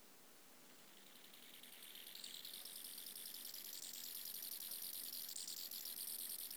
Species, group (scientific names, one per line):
Chorthippus biguttulus
Orthoptera